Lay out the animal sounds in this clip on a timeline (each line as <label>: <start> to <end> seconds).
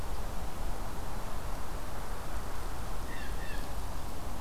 Blue Jay (Cyanocitta cristata): 3.0 to 3.8 seconds